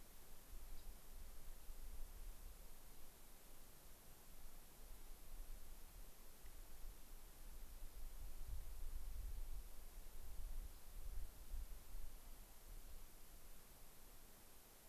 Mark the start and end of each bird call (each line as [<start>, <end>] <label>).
[0.72, 0.92] Rock Wren (Salpinctes obsoletus)
[10.62, 10.92] Rock Wren (Salpinctes obsoletus)